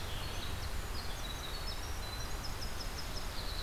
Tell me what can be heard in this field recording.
Winter Wren